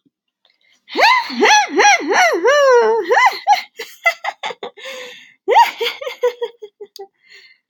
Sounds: Laughter